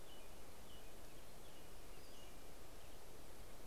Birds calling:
American Robin (Turdus migratorius), Pacific-slope Flycatcher (Empidonax difficilis)

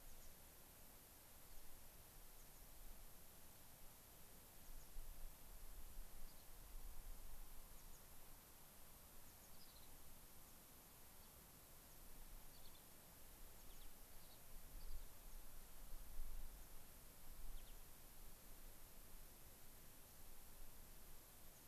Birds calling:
American Pipit (Anthus rubescens), Gray-crowned Rosy-Finch (Leucosticte tephrocotis)

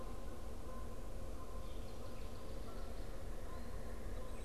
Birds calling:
Canada Goose (Branta canadensis)

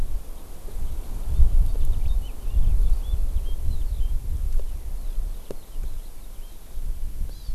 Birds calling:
Hawaii Amakihi (Chlorodrepanis virens), Red-billed Leiothrix (Leiothrix lutea), Eurasian Skylark (Alauda arvensis)

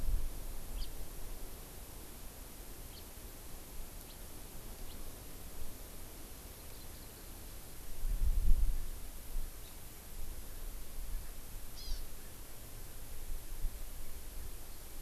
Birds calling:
Hawaii Amakihi (Chlorodrepanis virens), House Finch (Haemorhous mexicanus)

